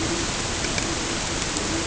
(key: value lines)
label: ambient
recorder: HydroMoth